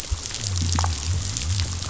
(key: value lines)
label: biophony
recorder: SoundTrap 500